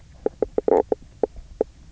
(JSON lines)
{"label": "biophony, knock croak", "recorder": "SoundTrap 300"}